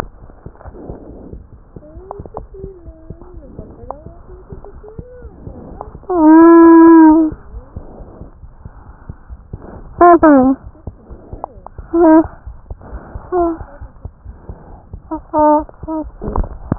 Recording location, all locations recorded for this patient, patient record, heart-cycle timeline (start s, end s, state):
pulmonary valve (PV)
pulmonary valve (PV)+tricuspid valve (TV)+mitral valve (MV)
#Age: Child
#Sex: Female
#Height: 81.0 cm
#Weight: 13.415 kg
#Pregnancy status: False
#Murmur: Absent
#Murmur locations: nan
#Most audible location: nan
#Systolic murmur timing: nan
#Systolic murmur shape: nan
#Systolic murmur grading: nan
#Systolic murmur pitch: nan
#Systolic murmur quality: nan
#Diastolic murmur timing: nan
#Diastolic murmur shape: nan
#Diastolic murmur grading: nan
#Diastolic murmur pitch: nan
#Diastolic murmur quality: nan
#Outcome: Normal
#Campaign: 2015 screening campaign
0.00	2.70	unannotated
2.70	2.84	diastole
2.84	2.93	S1
2.93	3.07	systole
3.07	3.18	S2
3.18	3.35	diastole
3.35	3.46	S1
3.46	3.57	systole
3.57	3.65	S2
3.65	3.80	diastole
3.80	3.89	S1
3.89	4.04	systole
4.04	4.10	S2
4.10	4.30	diastole
4.30	4.38	S1
4.38	4.50	systole
4.50	4.57	S2
4.57	4.73	diastole
4.73	4.82	S1
4.82	4.96	systole
4.96	5.04	S2
5.04	5.22	diastole
5.22	5.36	S1
5.36	5.46	systole
5.46	5.58	S2
5.58	7.50	unannotated
7.50	7.63	S1
7.63	7.74	systole
7.74	7.84	S2
7.84	7.97	diastole
7.97	8.06	S1
8.06	8.18	systole
8.18	8.26	S2
8.26	8.40	diastole
8.40	8.49	S1
8.49	8.62	systole
8.62	8.72	S2
8.72	8.85	diastole
8.85	8.96	S1
8.96	9.08	systole
9.08	9.15	S2
9.15	9.29	diastole
9.29	9.37	S1
9.37	9.51	systole
9.51	9.59	S2
9.59	9.76	diastole
9.76	16.78	unannotated